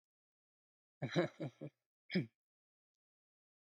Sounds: Laughter